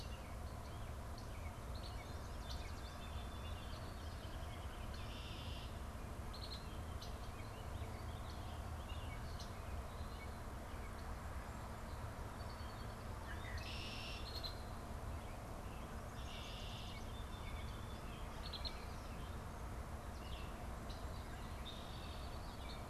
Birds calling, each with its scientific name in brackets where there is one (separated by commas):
Yellow Warbler (Setophaga petechia), Baltimore Oriole (Icterus galbula), Red-winged Blackbird (Agelaius phoeniceus)